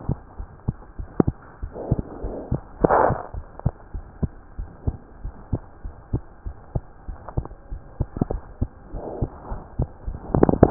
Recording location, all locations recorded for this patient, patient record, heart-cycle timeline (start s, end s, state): pulmonary valve (PV)
aortic valve (AV)+pulmonary valve (PV)+tricuspid valve (TV)+mitral valve (MV)
#Age: Child
#Sex: Male
#Height: 93.0 cm
#Weight: 10.4 kg
#Pregnancy status: False
#Murmur: Absent
#Murmur locations: nan
#Most audible location: nan
#Systolic murmur timing: nan
#Systolic murmur shape: nan
#Systolic murmur grading: nan
#Systolic murmur pitch: nan
#Systolic murmur quality: nan
#Diastolic murmur timing: nan
#Diastolic murmur shape: nan
#Diastolic murmur grading: nan
#Diastolic murmur pitch: nan
#Diastolic murmur quality: nan
#Outcome: Normal
#Campaign: 2015 screening campaign
0.00	3.28	unannotated
3.28	3.44	S1
3.44	3.61	systole
3.61	3.74	S2
3.74	3.90	diastole
3.90	4.06	S1
4.06	4.19	systole
4.19	4.32	S2
4.32	4.54	diastole
4.54	4.70	S1
4.70	4.84	systole
4.84	5.00	S2
5.00	5.21	diastole
5.21	5.34	S1
5.34	5.48	systole
5.48	5.62	S2
5.62	5.78	diastole
5.78	5.94	S1
5.94	6.10	systole
6.10	6.24	S2
6.24	6.42	diastole
6.42	6.56	S1
6.56	6.72	systole
6.72	6.86	S2
6.86	7.04	diastole
7.04	7.18	S1
7.18	7.33	systole
7.33	7.50	S2
7.50	7.68	diastole
7.68	7.82	S1
7.82	7.96	systole
7.96	8.10	S2
8.10	8.28	diastole
8.28	8.42	S1
8.42	8.58	systole
8.58	8.72	S2
8.72	8.89	diastole
8.89	9.06	S1
9.06	9.18	systole
9.18	9.30	S2
9.30	9.46	diastole
9.46	9.62	S1
9.62	9.76	systole
9.76	9.90	S2
9.90	10.04	diastole
10.04	10.18	S1
10.18	10.70	unannotated